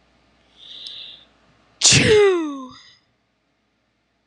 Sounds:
Sneeze